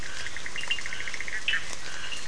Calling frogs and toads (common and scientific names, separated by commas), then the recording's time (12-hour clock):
Bischoff's tree frog (Boana bischoffi), Scinax perereca, Cochran's lime tree frog (Sphaenorhynchus surdus)
10:00pm